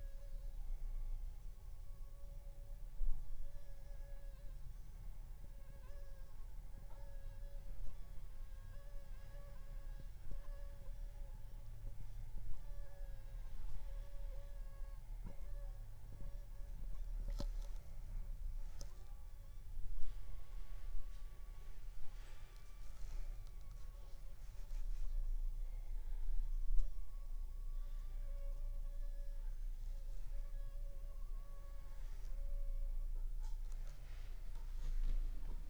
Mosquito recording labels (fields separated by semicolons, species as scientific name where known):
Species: Anopheles funestus s.s.; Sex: female; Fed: unfed; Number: one; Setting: cup